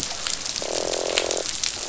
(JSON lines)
{"label": "biophony, croak", "recorder": "SoundTrap 500"}